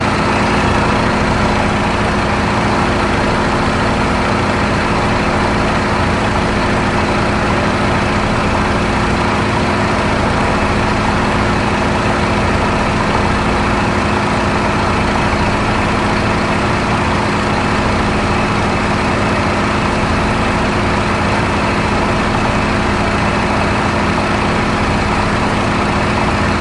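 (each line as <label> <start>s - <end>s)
An engine is running loudly and continuously nearby. 0.0s - 26.6s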